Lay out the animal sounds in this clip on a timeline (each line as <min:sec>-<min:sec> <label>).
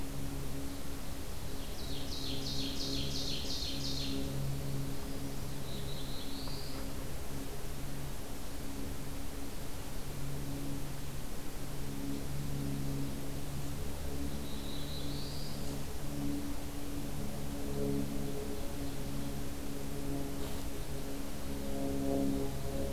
0:01.3-0:04.3 Ovenbird (Seiurus aurocapilla)
0:05.4-0:06.9 Black-throated Blue Warbler (Setophaga caerulescens)
0:14.3-0:15.7 Black-throated Blue Warbler (Setophaga caerulescens)